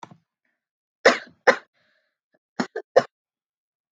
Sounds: Cough